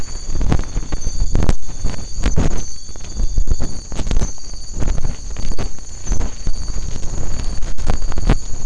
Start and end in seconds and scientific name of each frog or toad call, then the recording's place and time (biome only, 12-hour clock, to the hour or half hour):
none
Atlantic Forest, midnight